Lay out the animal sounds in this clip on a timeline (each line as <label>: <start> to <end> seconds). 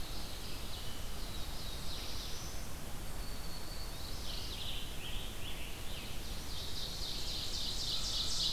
Red-eyed Vireo (Vireo olivaceus): 0.0 to 8.5 seconds
Black-throated Blue Warbler (Setophaga caerulescens): 0.7 to 2.7 seconds
Black-throated Green Warbler (Setophaga virens): 2.9 to 4.4 seconds
Mourning Warbler (Geothlypis philadelphia): 3.7 to 4.8 seconds
Scarlet Tanager (Piranga olivacea): 4.2 to 6.5 seconds
Ovenbird (Seiurus aurocapilla): 6.1 to 8.5 seconds